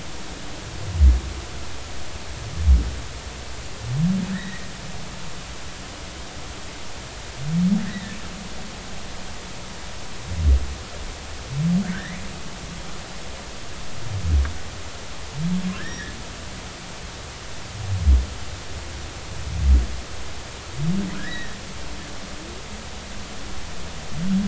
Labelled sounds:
4.3	4.7	humpback whale, 1.6 to 2.0 kHz
7.8	8.2	humpback whale, 1.6 to 2.1 kHz
11.9	12.2	humpback whale, 1.5 to 2.3 kHz
15.8	16.1	humpback whale, 1.5 to 2.0 kHz
21.2	21.6	humpback whale, 1.5 to 2.0 kHz

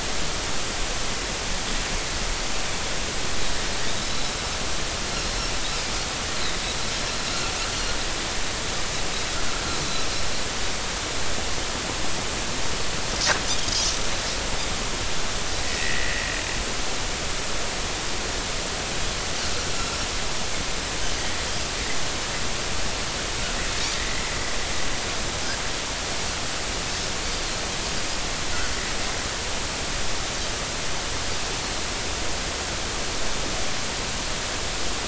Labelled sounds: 4.0	4.3	Pacific white-sided dolphin, 3.8 to 4.0 kHz
5.1	5.5	Pacific white-sided dolphin, 4.0 to 4.3 kHz
7.7	7.9	Pacific white-sided dolphin, 4.1 to 4.4 kHz
9.8	10.1	Pacific white-sided dolphin, 3.9 to 4.1 kHz
15.6	16.1	Pacific white-sided dolphin, 1.8 to 2.0 kHz
23.9	24.2	Pacific white-sided dolphin, 1.8 to 2.1 kHz

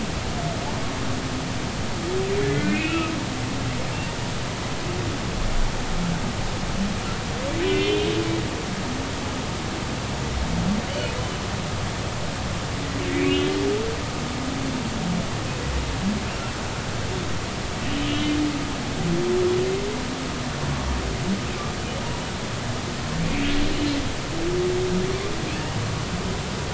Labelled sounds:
2.4	3.1	humpback whale, 1.2 to 3.0 kHz
7.6	8.1	humpback whale, 2.0 to 3.7 kHz
10.9	11.1	humpback whale, 2.8 to 3.1 kHz
13.1	13.5	humpback whale, 2.1 to 2.6 kHz
17.9	18.4	humpback whale, 2.8 to 3.3 kHz
23.2	23.5	humpback whale, 2.2 to 2.7 kHz

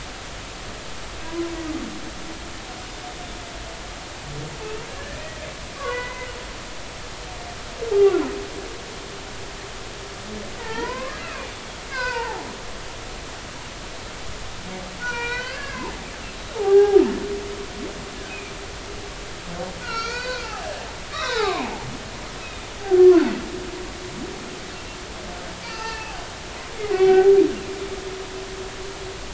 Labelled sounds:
4.6	5.2	humpback whale, 1.6 to 2.8 kHz
5.8	6.3	humpback whale, 0.93 to 3.0 kHz
7.9	8.2	humpback whale, 0.80 to 0.90 kHz
10.6	11.5	humpback whale, 0.83 to 2.8 kHz
11.9	12.5	humpback whale, 0.80 to 2.7 kHz
15.0	17.0	humpback whale, 0.80 to 5.9 kHz
18.3	18.5	humpback whale, 2.3 to 2.6 kHz
19.8	20.7	humpback whale, 0.80 to 5.9 kHz
21.1	22.7	humpback whale, 0.80 to 4.1 kHz
23.0	23.3	humpback whale, 0.96 to 1.2 kHz
25.6	26.1	humpback whale, 0.83 to 5.0 kHz
26.8	27.3	humpback whale, 0.80 to 3.1 kHz

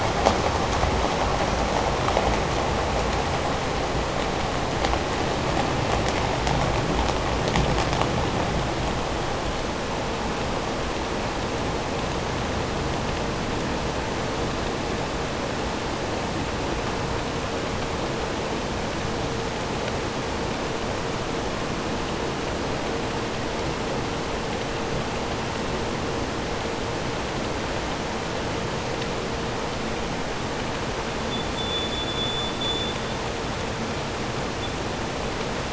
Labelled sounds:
31.2	33.3	vessel noise, 3.4 to 7.2 kHz
34.5	34.8	vessel noise, 3.3 to 3.6 kHz

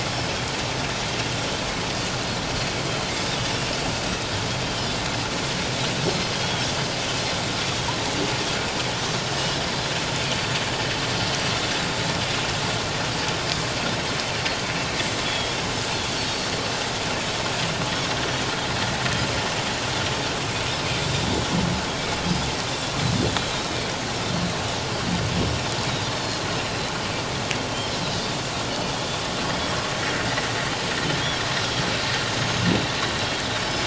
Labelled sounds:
6.0	6.7	Pacific white-sided dolphin, 3.1 to 4.4 kHz
15.2	15.6	Pacific white-sided dolphin, 3.2 to 3.4 kHz
26.6	26.9	Pacific white-sided dolphin, 4.0 to 4.2 kHz
27.7	28.0	Pacific white-sided dolphin, 3.0 to 3.4 kHz
29.4	29.8	Pacific white-sided dolphin, 3.1 to 3.4 kHz
32.4	33.8	Pacific white-sided dolphin, 5.0 to 6.6 kHz

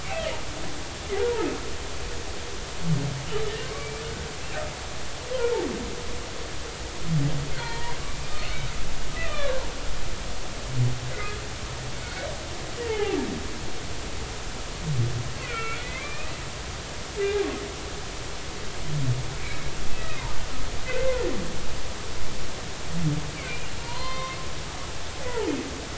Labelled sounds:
1.2	1.5	humpback whale, 0.80 to 0.99 kHz
3.6	4.0	humpback whale, 0.99 to 2.4 kHz
7.6	8.6	humpback whale, 0.86 to 4.5 kHz
9.1	9.7	humpback whale, 0.90 to 2.8 kHz
11.1	11.4	humpback whale, 1.9 to 2.2 kHz
12.0	13.2	humpback whale, 0.80 to 4.5 kHz
15.4	16.3	humpback whale, 1.3 to 2.7 kHz
20.0	21.2	humpback whale, 0.83 to 2.1 kHz
23.8	24.4	humpback whale, 0.90 to 4.3 kHz
25.3	25.5	humpback whale, 0.83 to 1.0 kHz

